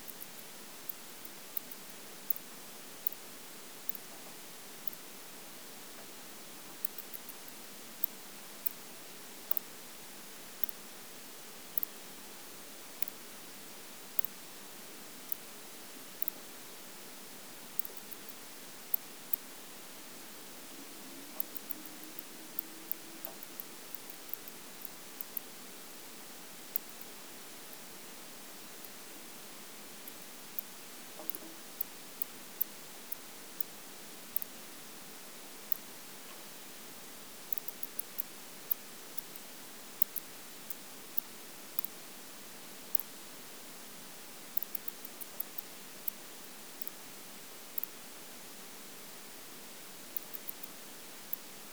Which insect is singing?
Leptophyes laticauda, an orthopteran